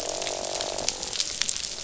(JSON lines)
{"label": "biophony, croak", "recorder": "SoundTrap 500"}